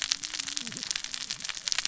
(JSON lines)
{"label": "biophony, cascading saw", "recorder": "SoundTrap 600 or HydroMoth"}